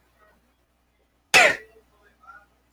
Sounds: Sneeze